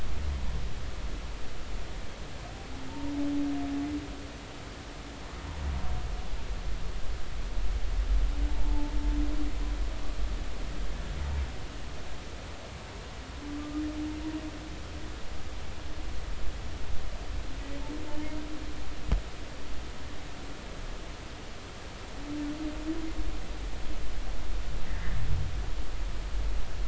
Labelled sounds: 2.9	3.1	humpback whale, 0.86 to 0.99 kHz
8.5	8.9	humpback whale, 0.83 to 0.96 kHz

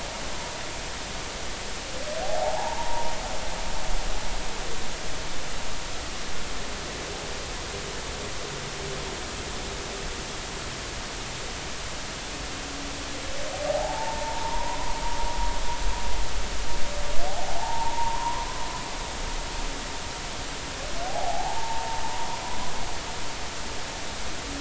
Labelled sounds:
2.2	3.1	humpback whale, 0.80 to 0.99 kHz
13.7	14.8	humpback whale, 0.80 to 1.1 kHz
17.3	18.5	humpback whale, 0.80 to 1.2 kHz
21.1	22.6	humpback whale, 0.80 to 1.1 kHz

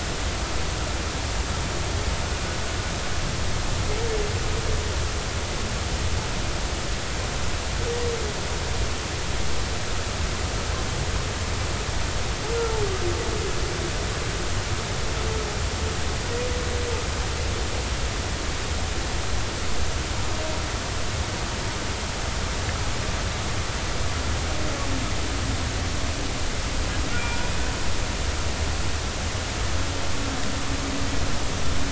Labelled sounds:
27.2	27.6	humpback whale, 0.90 to 5.0 kHz

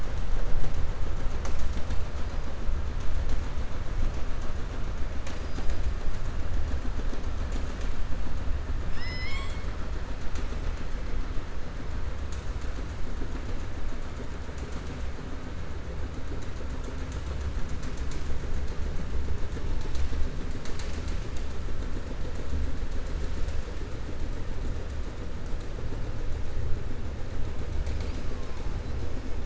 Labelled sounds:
8.8	9.6	killer whale, southern resident, 1.1 to 7.6 kHz

